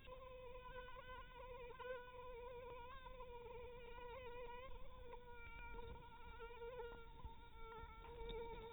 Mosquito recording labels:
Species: Anopheles dirus; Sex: female; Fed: unfed; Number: one; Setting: cup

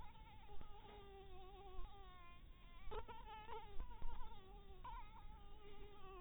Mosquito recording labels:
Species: Anopheles dirus; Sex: female; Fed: blood-fed; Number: one; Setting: cup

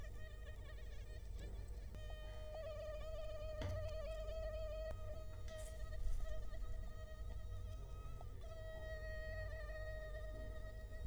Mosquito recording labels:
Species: Culex quinquefasciatus; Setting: cup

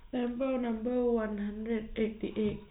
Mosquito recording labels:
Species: no mosquito; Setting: cup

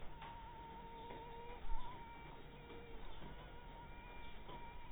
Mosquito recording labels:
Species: mosquito; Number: one; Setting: cup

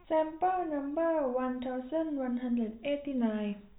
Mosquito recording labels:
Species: no mosquito; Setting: cup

